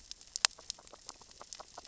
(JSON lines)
{"label": "biophony, grazing", "recorder": "SoundTrap 600 or HydroMoth"}